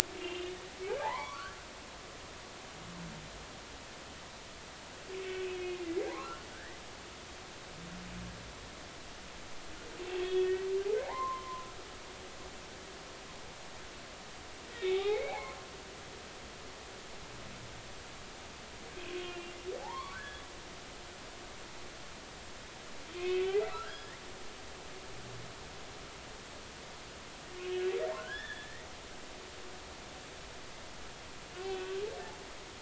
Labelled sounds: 0.2	0.6	humpback whale, 2.7 to 3.2 kHz
1.1	1.4	humpback whale, 1.9 to 2.3 kHz
2.0	2.6	humpback whale, 0.80 to 1.7 kHz
5.2	6.8	humpback whale, 0.93 to 3.0 kHz
10.1	10.5	humpback whale, 2.5 to 3.4 kHz
11.0	11.7	humpback whale, 0.80 to 1.1 kHz
14.8	15.6	humpback whale, 0.80 to 3.8 kHz
19.0	20.4	humpback whale, 0.80 to 3.5 kHz
23.2	24.2	humpback whale, 1.1 to 5.2 kHz
27.6	28.9	humpback whale, 1.3 to 3.7 kHz
31.5	32.0	humpback whale, 1.4 to 2.7 kHz

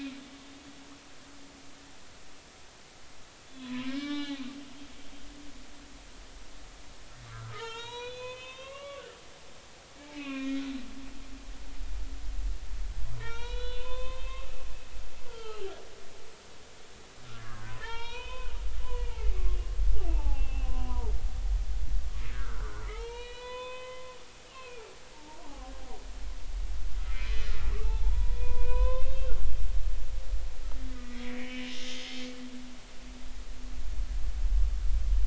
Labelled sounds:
3.5	4.4	humpback whale, 0.80 to 4.1 kHz
7.3	9.0	humpback whale, 0.83 to 6.0 kHz
10.0	10.6	humpback whale, 0.80 to 2.9 kHz
13.2	14.5	humpback whale, 0.86 to 5.9 kHz
15.3	15.7	humpback whale, 1.2 to 3.2 kHz
17.3	21.1	humpback whale, 0.80 to 6.0 kHz
22.3	24.2	humpback whale, 0.83 to 4.4 kHz
24.5	25.7	humpback whale, 0.80 to 2.9 kHz
27.1	30.0	humpback whale, 0.83 to 4.1 kHz
30.9	32.0	humpback whale, 1.8 to 3.2 kHz

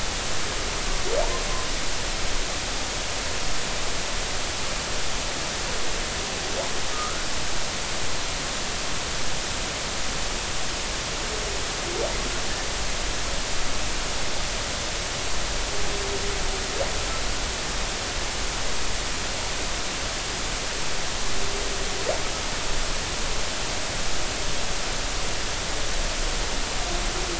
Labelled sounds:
6.9	7.2	humpback whale, 1.2 to 1.6 kHz

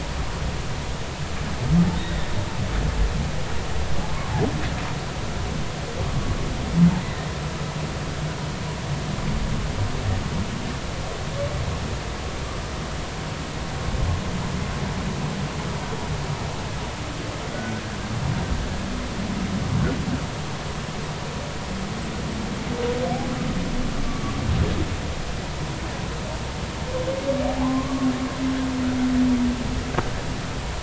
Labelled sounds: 2.0	2.3	humpback whale, 1.7 to 2.0 kHz
7.0	7.3	humpback whale, 1.8 to 2.0 kHz
27.5	28.1	humpback whale, 0.80 to 1.2 kHz

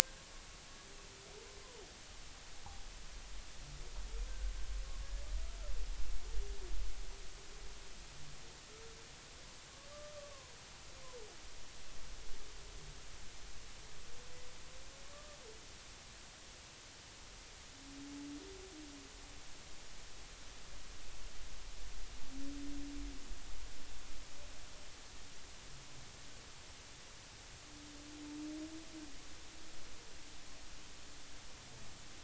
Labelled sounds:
9.9	10.6	humpback whale, 0.93 to 1.4 kHz
15.1	15.4	humpback whale, 1.1 to 1.2 kHz

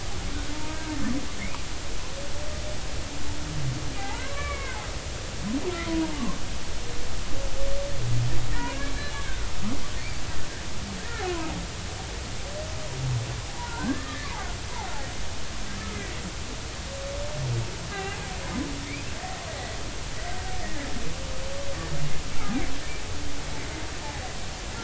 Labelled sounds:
0.5	0.8	humpback whale, 0.86 to 0.96 kHz
4.0	4.8	humpback whale, 0.80 to 2.4 kHz
5.9	6.4	humpback whale, 0.86 to 1.2 kHz
8.7	9.5	humpback whale, 1.3 to 2.3 kHz
11.3	11.6	humpback whale, 0.80 to 1.1 kHz
13.6	14.3	humpback whale, 0.86 to 1.9 kHz
18.9	19.2	humpback whale, 0.80 to 2.1 kHz

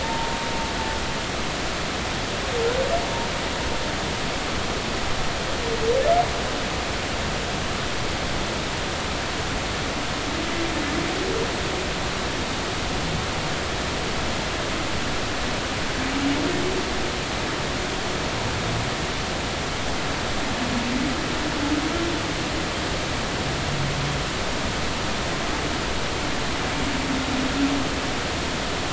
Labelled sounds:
0.0	0.4	humpback whale, 0.83 to 0.99 kHz

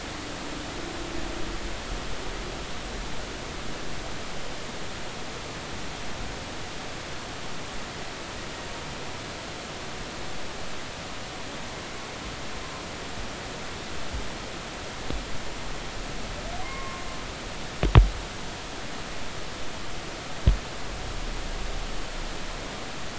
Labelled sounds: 16.6	17.0	humpback whale, 0.96 to 2.2 kHz

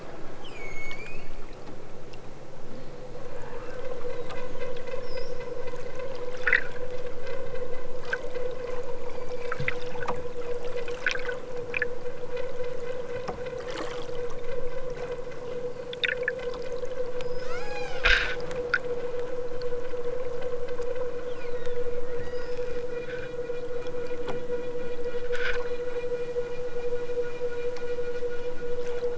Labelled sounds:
17.2	18.0	killer whale, southern Alaska resident, 1.0 to 8.0 kHz
22.0	22.8	killer whale, southern Alaska resident, 1.6 to 5.7 kHz

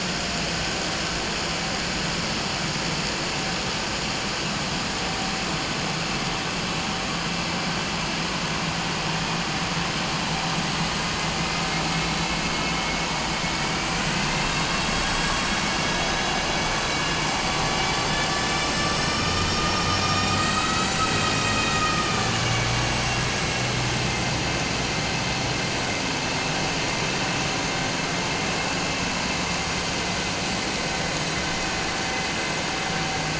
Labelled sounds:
15.7	17.3	vessel noise, 2.2 to 6.2 kHz

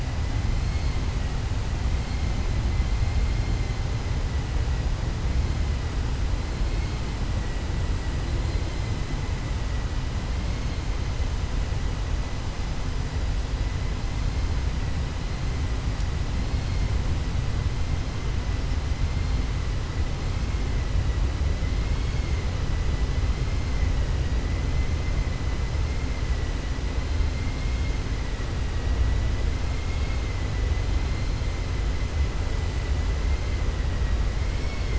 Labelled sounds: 34.5	34.9	vessel noise, 2.1 to 3.0 kHz

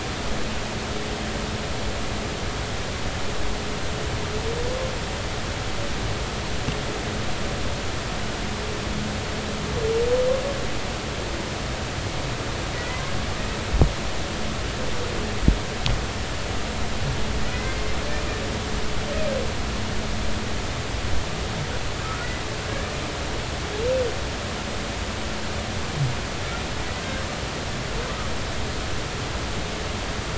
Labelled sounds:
12.8	13.0	humpback whale, 1.9 to 2.1 kHz
17.5	17.8	humpback whale, 2.0 to 2.2 kHz

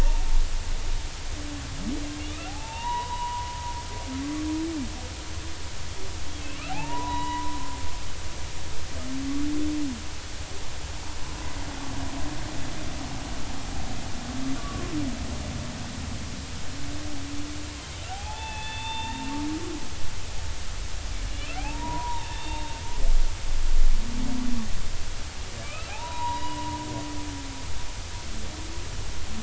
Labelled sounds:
2.5	3.6	humpback whale, 0.80 to 3.9 kHz
6.5	7.6	humpback whale, 0.80 to 3.0 kHz
14.6	14.9	humpback whale, 1.1 to 1.3 kHz
18.1	19.3	humpback whale, 0.80 to 3.7 kHz
21.6	22.7	humpback whale, 0.80 to 3.8 kHz
25.6	26.8	humpback whale, 0.80 to 4.0 kHz

